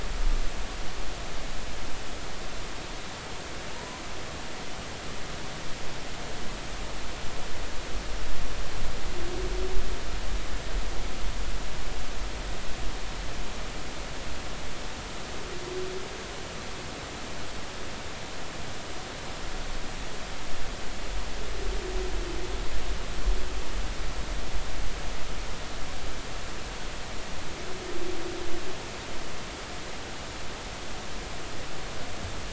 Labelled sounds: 3.7	4.0	humpback whale, 0.83 to 1.1 kHz

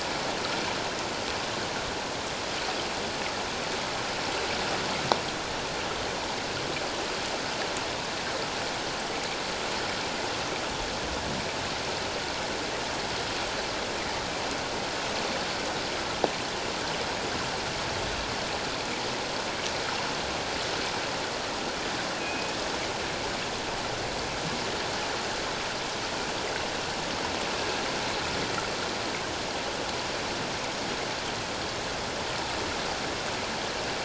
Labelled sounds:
22.2	22.5	killer whale, northern resident, G clan, 2.4 to 2.7 kHz

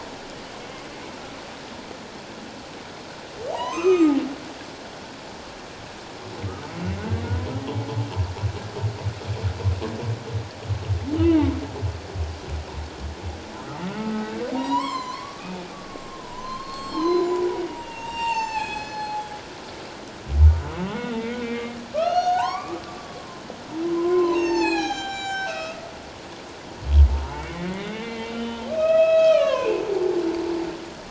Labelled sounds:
3.5	4.2	humpback whale, 0.78 to 6.5 kHz
7.0	7.2	humpback whale, 1.4 to 1.6 kHz
11.2	11.6	humpback whale, 0.81 to 3.1 kHz
14.0	19.3	humpback whale, 0.78 to 7.8 kHz
20.9	22.8	humpback whale, 0.78 to 6.6 kHz
23.9	25.8	humpback whale, 0.78 to 7.8 kHz
27.3	29.8	humpback whale, 0.97 to 6.8 kHz

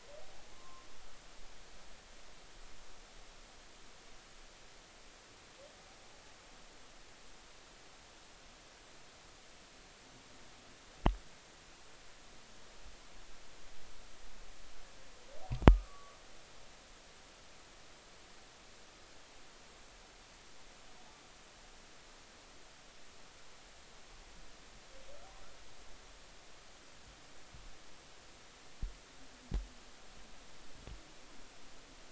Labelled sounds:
0.5	0.9	humpback whale, 0.99 to 1.2 kHz
15.7	16.2	humpback whale, 1.1 to 1.3 kHz

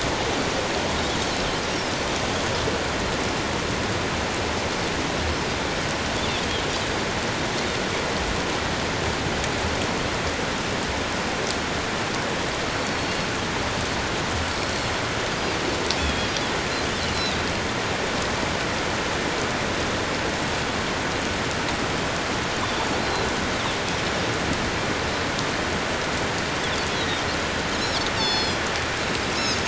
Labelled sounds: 1.6	1.9	Pacific white-sided dolphin, 5.1 to 5.8 kHz
12.7	13.3	Pacific white-sided dolphin, 4.2 to 4.6 kHz
14.5	14.9	Pacific white-sided dolphin, 4.2 to 4.5 kHz
16.0	16.3	Pacific white-sided dolphin, 3.2 to 3.5 kHz
17.1	17.4	Pacific white-sided dolphin, 3.5 to 4.2 kHz
22.6	23.3	Pacific white-sided dolphin, 3.4 to 4.2 kHz
27.0	27.2	Pacific white-sided dolphin, 3.6 to 4.0 kHz
28.1	29.6	Pacific white-sided dolphin, 3.2 to 7.0 kHz

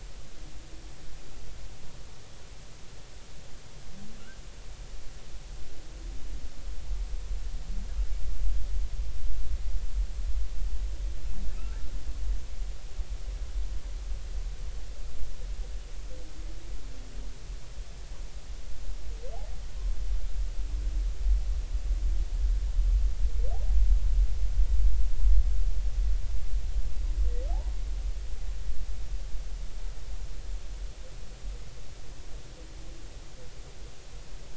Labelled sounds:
11.6	11.9	humpback whale, 1.2 to 1.4 kHz

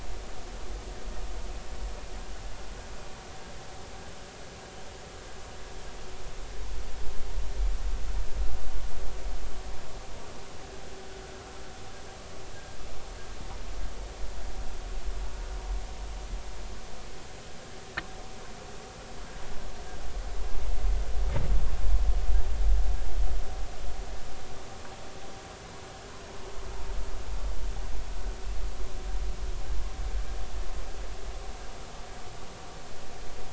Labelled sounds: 12.5	12.8	vessel noise, 1.5 to 1.7 kHz

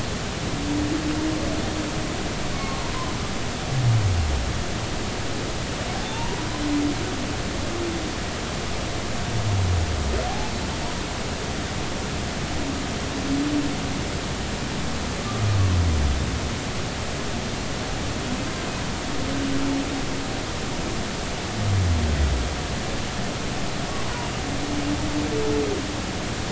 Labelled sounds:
2.6	2.9	humpback whale, 0.90 to 4.5 kHz
5.9	6.4	humpback whale, 0.80 to 0.99 kHz
10.3	10.5	humpback whale, 0.80 to 0.90 kHz

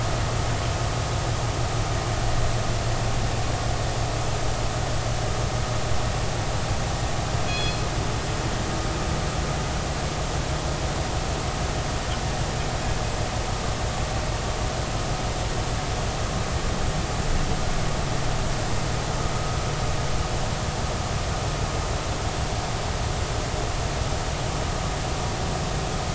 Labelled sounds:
7.5	7.8	killer whale, northern resident, G clan, call N24ii, 2.4 to 6.8 kHz

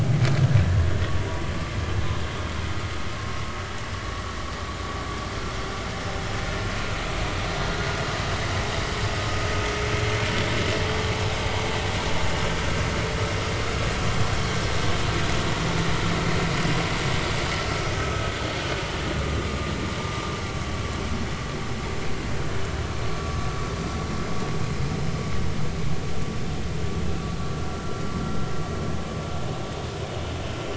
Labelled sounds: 1.2	1.4	vessel noise, 0.93 to 0.99 kHz
17.9	18.2	vessel noise, 1.2 to 1.3 kHz
19.2	19.5	vessel noise, 1.15 to 1.25 kHz
20.0	20.2	vessel noise, 0.90 to 1.2 kHz
23.2	23.5	vessel noise, 1.1 to 1.2 kHz

